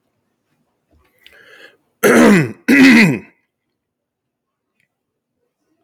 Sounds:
Throat clearing